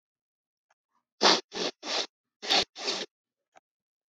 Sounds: Sniff